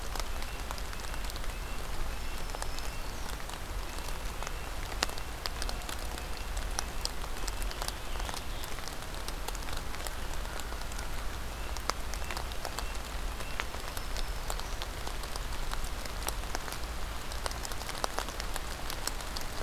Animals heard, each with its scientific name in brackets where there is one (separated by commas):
Scarlet Tanager (Piranga olivacea), American Crow (Corvus brachyrhynchos), Black-throated Green Warbler (Setophaga virens), Red-breasted Nuthatch (Sitta canadensis)